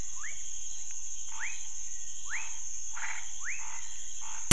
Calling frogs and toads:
rufous frog (Leptodactylus fuscus), Scinax fuscovarius, Chaco tree frog (Boana raniceps)

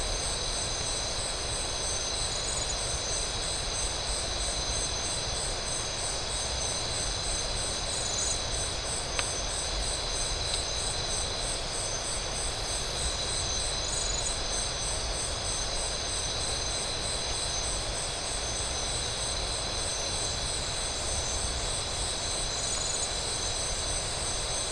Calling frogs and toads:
none

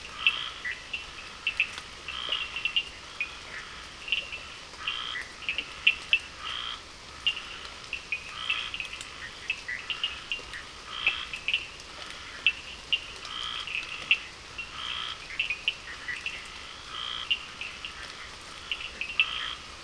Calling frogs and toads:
Cochran's lime tree frog (Sphaenorhynchus surdus), Scinax perereca, Bischoff's tree frog (Boana bischoffi)

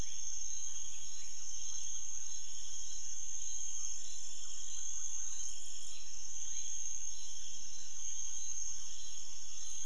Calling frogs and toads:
none

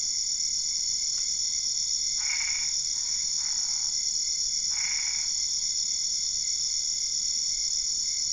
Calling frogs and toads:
Boana albopunctata

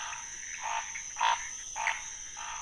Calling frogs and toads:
Pithecopus azureus, Scinax fuscovarius

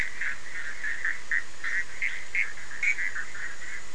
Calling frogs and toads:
Bischoff's tree frog (Boana bischoffi)

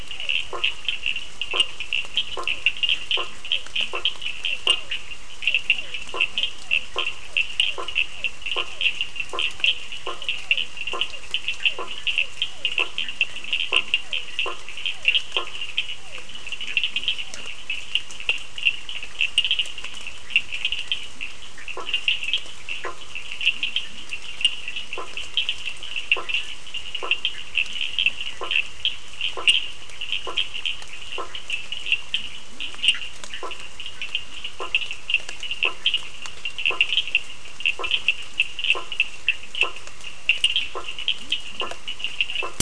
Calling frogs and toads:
blacksmith tree frog (Boana faber), Physalaemus cuvieri, Cochran's lime tree frog (Sphaenorhynchus surdus), Bischoff's tree frog (Boana bischoffi)

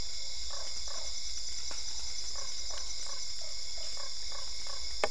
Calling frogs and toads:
Usina tree frog (Boana lundii)

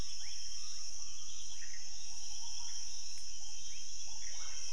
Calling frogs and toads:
rufous frog (Leptodactylus fuscus), Pithecopus azureus

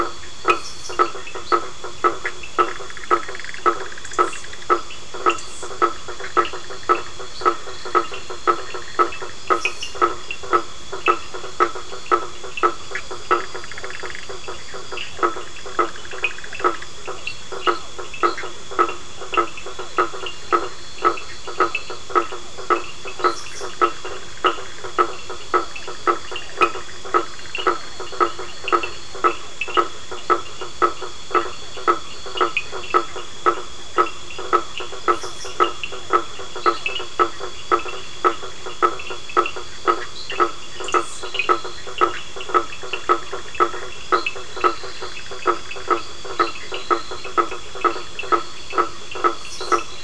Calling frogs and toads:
two-colored oval frog (Elachistocleis bicolor), blacksmith tree frog (Boana faber), Cochran's lime tree frog (Sphaenorhynchus surdus), fine-lined tree frog (Boana leptolineata), Bischoff's tree frog (Boana bischoffi)

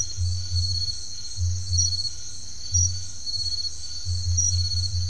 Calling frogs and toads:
Crubixa snouted tree frog (Scinax alter)

